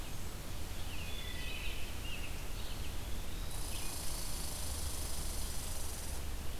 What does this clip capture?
Red-eyed Vireo, Wood Thrush, Red Squirrel